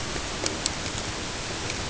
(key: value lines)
label: ambient
recorder: HydroMoth